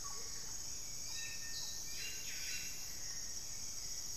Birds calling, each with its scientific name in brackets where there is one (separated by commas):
Amazonian Motmot (Momotus momota), Hauxwell's Thrush (Turdus hauxwelli), Buff-breasted Wren (Cantorchilus leucotis)